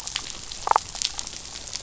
{"label": "biophony, damselfish", "recorder": "SoundTrap 500"}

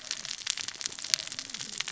{"label": "biophony, cascading saw", "recorder": "SoundTrap 600 or HydroMoth"}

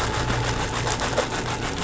{"label": "anthrophony, boat engine", "recorder": "SoundTrap 500"}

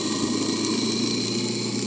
{"label": "anthrophony, boat engine", "recorder": "HydroMoth"}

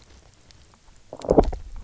{"label": "biophony, low growl", "recorder": "SoundTrap 300"}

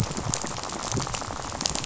{"label": "biophony, rattle", "recorder": "SoundTrap 500"}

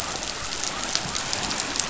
{"label": "biophony", "recorder": "SoundTrap 500"}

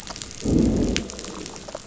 {"label": "biophony, growl", "recorder": "SoundTrap 500"}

